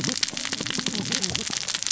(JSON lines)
{"label": "biophony, cascading saw", "recorder": "SoundTrap 600 or HydroMoth"}